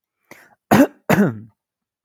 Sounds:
Throat clearing